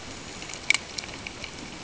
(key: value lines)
label: ambient
recorder: HydroMoth